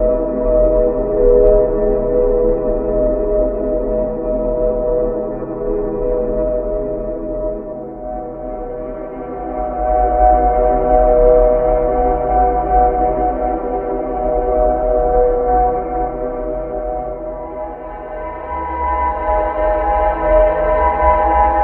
Are the noises artificial?
yes